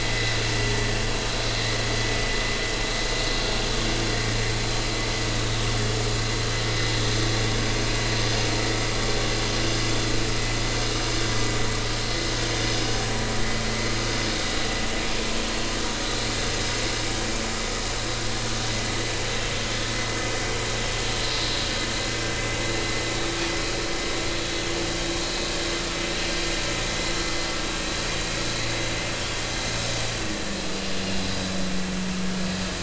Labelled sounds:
5.4	5.7	vessel noise, 3.7 to 3.9 kHz
31.0	31.2	vessel noise, 2.5 to 2.9 kHz

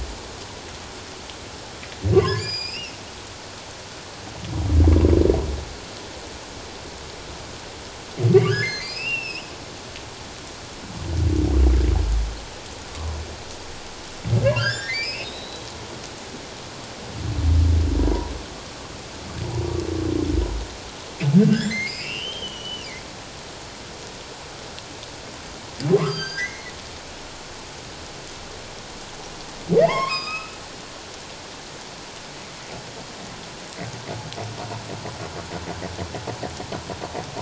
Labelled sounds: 2.1	3.0	humpback whale, 0.97 to 7.4 kHz
8.3	9.5	humpback whale, 1.4 to 5.5 kHz
14.4	15.6	humpback whale, 1.3 to 8.0 kHz
18.0	18.3	humpback whale, 0.91 to 1.0 kHz
21.5	22.9	humpback whale, 1.5 to 7.5 kHz
26.0	26.7	humpback whale, 1.0 to 6.4 kHz
29.8	30.6	humpback whale, 0.78 to 7.7 kHz

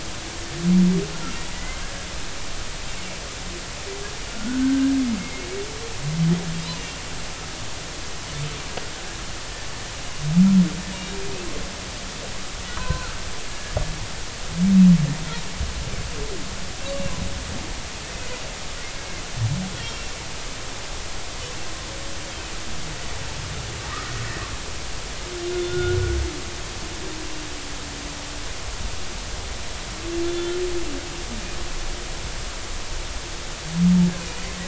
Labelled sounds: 1.5	1.8	humpback whale, 1.9 to 2.1 kHz
4.3	5.5	humpback whale, 1.3 to 2.2 kHz
12.7	13.7	humpback whale, 0.96 to 1.7 kHz
16.8	17.1	humpback whale, 2.6 to 2.8 kHz
19.8	20.1	humpback whale, 5.4 to 5.6 kHz
25.6	26.2	humpback whale, 1.4 to 3.6 kHz
30.2	30.6	humpback whale, 1.7 to 3.5 kHz
34.2	34.5	humpback whale, 2.8 to 3.1 kHz

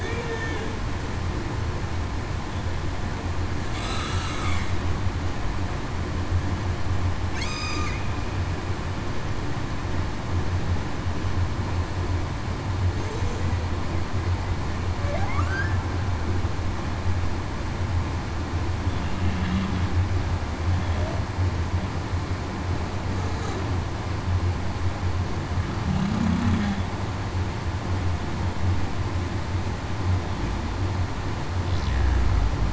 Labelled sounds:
0.0	0.4	humpback whale, 0.42 to 0.49 kHz
3.8	4.1	humpback whale, 1.2 to 1.4 kHz
7.4	7.9	humpback whale, 1.1 to 1.3 kHz
15.4	15.8	humpback whale, 1.5 to 1.8 kHz
25.8	26.5	humpback whale, 0.19 to 0.28 kHz

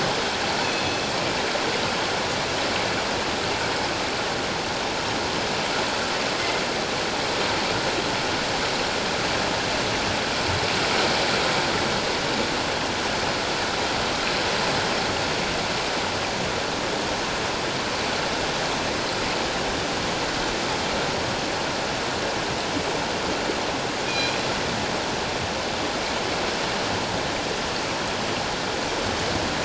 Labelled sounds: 0.6	1.1	killer whale, northern resident, G clan, 2.4 to 4.4 kHz
24.1	24.4	killer whale, northern resident, G clan, 2.3 to 7.4 kHz

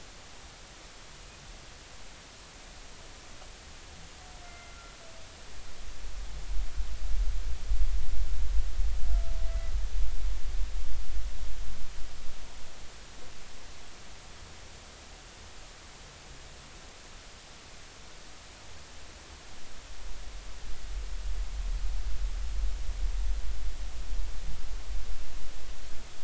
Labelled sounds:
4.4	4.9	humpback whale, 1.3 to 2.2 kHz

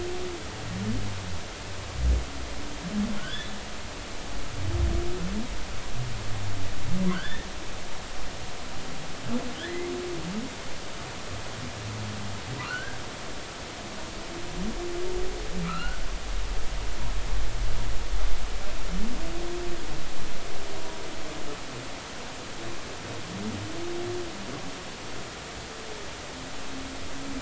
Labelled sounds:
3.2	3.5	humpback whale, 1.4 to 3.6 kHz
7.1	7.5	humpback whale, 1.3 to 3.7 kHz
9.7	9.9	humpback whale, 2.0 to 2.2 kHz
12.6	13.0	humpback whale, 1.3 to 1.7 kHz
15.6	16.0	humpback whale, 1.2 to 4.4 kHz

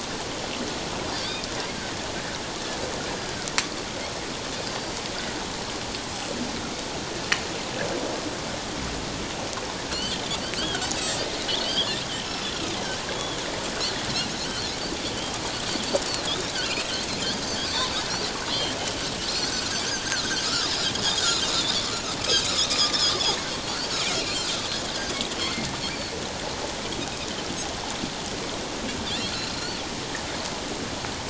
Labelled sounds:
1.1	1.4	Pacific white-sided dolphin, 4.3 to 5.0 kHz
4.7	4.9	Pacific white-sided dolphin, 4.6 to 4.8 kHz
9.9	10.2	Pacific white-sided dolphin, 4.1 to 4.7 kHz
10.6	12.0	Pacific white-sided dolphin, 1.3 to 5.1 kHz
12.5	12.7	Pacific white-sided dolphin, 1.2 to 1.5 kHz
16.3	17.7	Pacific white-sided dolphin, 2.2 to 5.2 kHz
20.1	20.9	Pacific white-sided dolphin, 1.1 to 5.4 kHz
24.2	24.5	Pacific white-sided dolphin, 4.1 to 4.5 kHz
25.4	25.7	Pacific white-sided dolphin, 2.0 to 2.3 kHz
29.2	29.8	Pacific white-sided dolphin, 3.9 to 4.6 kHz

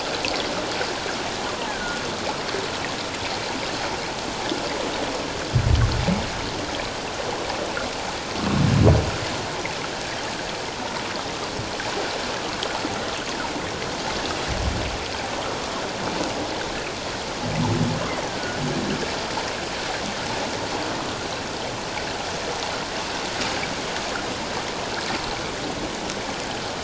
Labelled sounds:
1.7	2.0	killer whale, offshore, call OFF17, 1.4 to 1.8 kHz
18.3	18.6	killer whale, offshore, call OFF17, 1.4 to 1.7 kHz

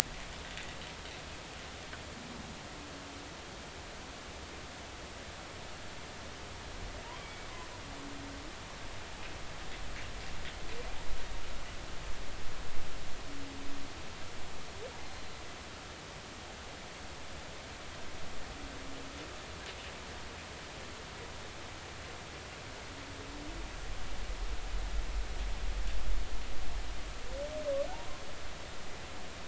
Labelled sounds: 7.2	7.5	humpback whale, 2.2 to 2.3 kHz
15.0	15.4	humpback whale, 4.0 to 4.2 kHz

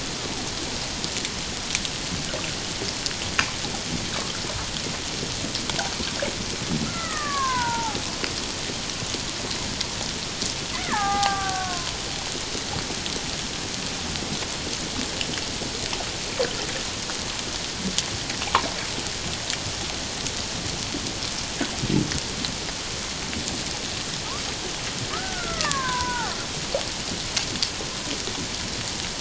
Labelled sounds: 6.9	8.0	killer whale, Bigg's (transient), 0.78 to 2.1 kHz
10.7	12.0	killer whale, Bigg's (transient), 0.78 to 2.3 kHz
25.1	26.3	killer whale, Bigg's (transient), 0.78 to 2.0 kHz

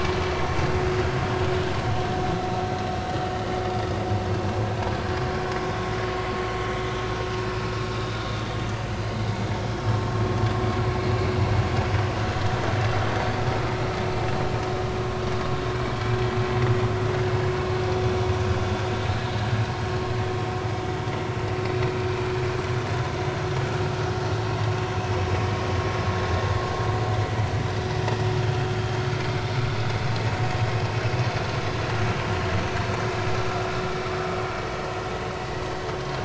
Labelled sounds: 5.6	5.9	vessel noise, 3.4 to 3.7 kHz
7.9	8.2	vessel noise, 3.6 to 3.8 kHz
35.4	35.6	vessel noise, 1.9 to 2.0 kHz

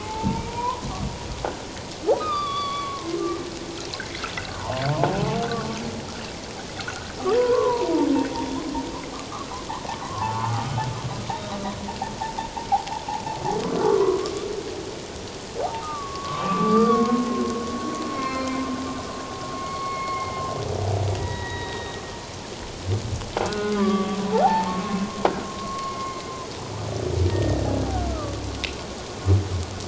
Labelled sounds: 0.0	0.8	humpback whale, 0.81 to 1.4 kHz
2.2	3.2	humpback whale, 1.0 to 4.8 kHz
4.5	4.8	humpback whale, 0.81 to 1.2 kHz
5.5	5.8	humpback whale, 1.1 to 1.2 kHz
6.8	7.9	humpback whale, 0.88 to 1.6 kHz
9.3	9.6	humpback whale, 1.0 to 1.4 kHz
10.0	10.7	humpback whale, 0.78 to 1.4 kHz
13.6	14.3	humpback whale, 0.97 to 1.5 kHz
15.8	18.6	humpback whale, 1.0 to 4.8 kHz
19.6	20.4	humpback whale, 1.1 to 4.5 kHz
21.1	22.0	humpback whale, 0.84 to 3.9 kHz
23.5	26.3	humpback whale, 0.78 to 2.2 kHz
27.3	27.7	humpback whale, 1.8 to 1.9 kHz
28.1	28.4	humpback whale, 1.1 to 1.4 kHz

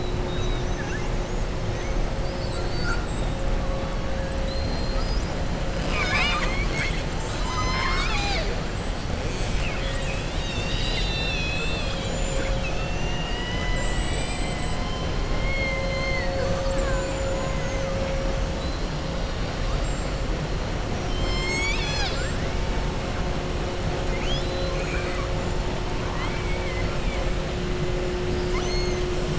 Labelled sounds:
0.2	1.1	killer whale, southern resident, 0.84 to 3.9 kHz
2.2	3.3	killer whale, southern resident, 3.9 to 8.0 kHz
4.4	5.3	killer whale, southern resident, 3.9 to 7.0 kHz
5.8	8.5	killer whale, southern resident, 0.71 to 7.9 kHz
13.6	14.8	killer whale, southern resident, 5.0 to 7.9 kHz
20.9	23.1	killer whale, southern resident, 1.4 to 8.0 kHz
24.0	25.3	killer whale, southern resident, 1.1 to 6.9 kHz
26.0	26.9	killer whale, southern resident, 0.85 to 3.3 kHz
28.3	29.1	killer whale, southern resident, 1.0 to 6.7 kHz

